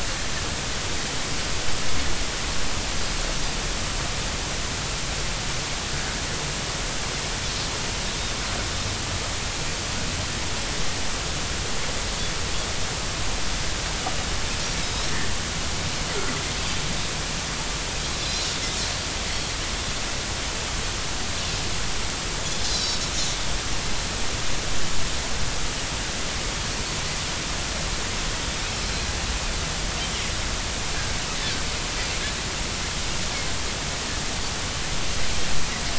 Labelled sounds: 14.8	15.2	Pacific white-sided dolphin, 5.0 to 5.7 kHz
19.3	19.5	Pacific white-sided dolphin, 4.2 to 4.5 kHz
22.7	23.0	Pacific white-sided dolphin, 3.7 to 5.6 kHz

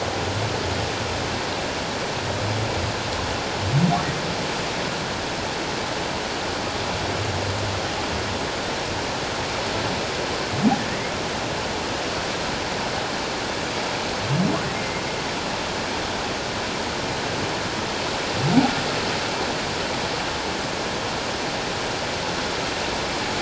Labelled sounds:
10.9	11.1	humpback whale, 1.8 to 2.2 kHz
14.8	15.0	humpback whale, 2.0 to 2.2 kHz

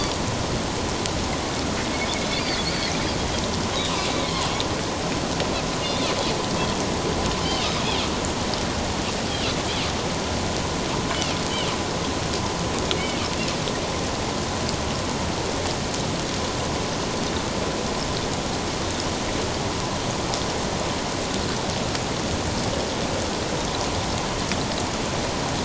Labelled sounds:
2.6	2.9	Pacific white-sided dolphin, 4.1 to 4.7 kHz
7.4	7.7	Pacific white-sided dolphin, 2.4 to 3.2 kHz

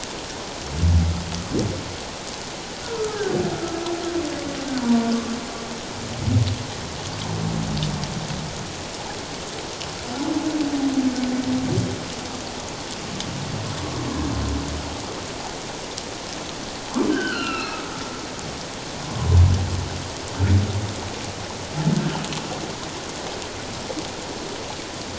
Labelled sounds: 2.8	3.2	humpback whale, 1.2 to 1.5 kHz
4.8	5.1	humpback whale, 0.88 to 1.0 kHz
17.1	17.9	humpback whale, 1.2 to 4.6 kHz

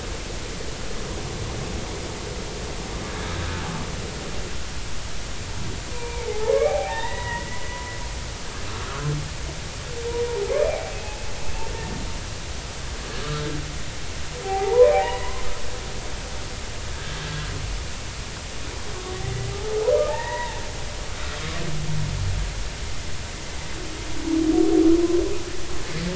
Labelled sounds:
3.1	3.3	humpback whale, 1.6 to 1.7 kHz
5.9	7.6	humpback whale, 0.80 to 2.4 kHz
14.4	15.4	humpback whale, 0.80 to 2.1 kHz
16.9	17.5	humpback whale, 1.5 to 1.7 kHz
19.6	20.6	humpback whale, 0.80 to 2.0 kHz

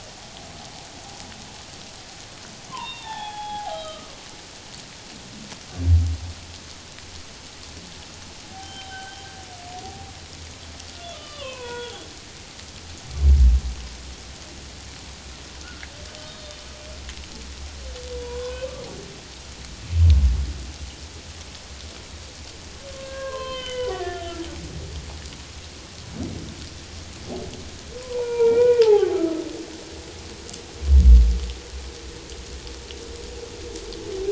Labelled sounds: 2.7	4.1	humpback whale, 0.78 to 3.9 kHz
8.5	9.2	humpback whale, 0.78 to 3.2 kHz
11.1	12.1	humpback whale, 0.91 to 3.7 kHz
16.3	16.6	humpback whale, 3.5 to 3.8 kHz
18.1	18.7	humpback whale, 0.91 to 1.6 kHz
22.9	24.4	humpback whale, 0.94 to 3.2 kHz
28.0	29.4	humpback whale, 0.78 to 2.5 kHz

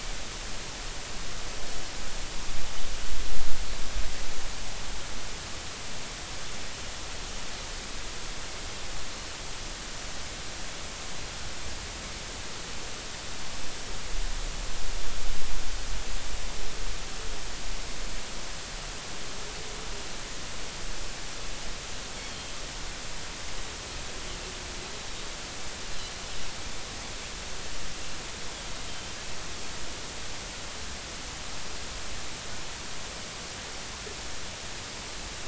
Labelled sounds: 22.2	22.5	Pacific white-sided dolphin, 3.1 to 4.4 kHz
28.9	29.2	Pacific white-sided dolphin, 3.0 to 3.2 kHz

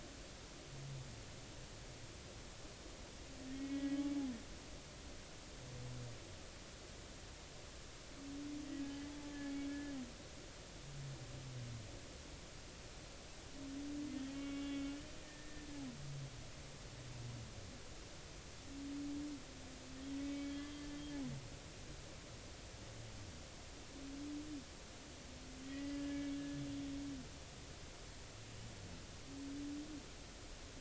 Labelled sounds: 3.5	4.0	humpback whale, 1.8 to 3.4 kHz
8.8	9.9	humpback whale, 1.6 to 1.8 kHz
14.1	14.9	humpback whale, 1.1 to 3.4 kHz
15.2	15.7	humpback whale, 1.7 to 1.9 kHz
20.2	20.5	humpback whale, 2.2 to 2.4 kHz
25.6	26.4	humpback whale, 1.7 to 2.3 kHz

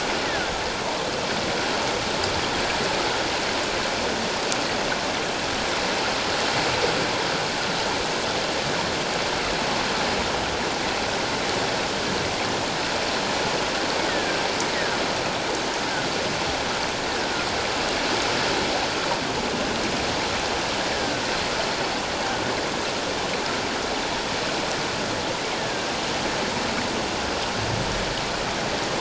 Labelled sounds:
0.2	0.5	killer whale, offshore, call OFF17, 1.4 to 2.0 kHz
14.1	15.0	killer whale, offshore, call OFF17, 1.4 to 2.1 kHz
17.0	17.3	killer whale, offshore, call OFF17, 1.5 to 1.9 kHz
20.9	21.2	killer whale, offshore, call OFF17, 1.5 to 1.8 kHz
25.6	25.9	killer whale, offshore, call OFF17, 1.5 to 1.9 kHz

